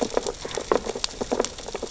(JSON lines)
{"label": "biophony, sea urchins (Echinidae)", "recorder": "SoundTrap 600 or HydroMoth"}